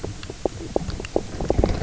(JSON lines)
{"label": "biophony, knock croak", "recorder": "SoundTrap 300"}